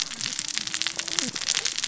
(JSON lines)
{"label": "biophony, cascading saw", "recorder": "SoundTrap 600 or HydroMoth"}